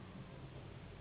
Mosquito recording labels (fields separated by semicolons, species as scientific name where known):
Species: Anopheles gambiae s.s.; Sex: female; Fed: unfed; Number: one; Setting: insect culture